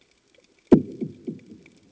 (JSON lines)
{"label": "anthrophony, bomb", "recorder": "HydroMoth"}